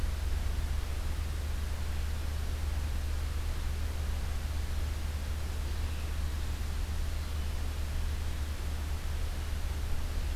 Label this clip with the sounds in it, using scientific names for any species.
Vireo olivaceus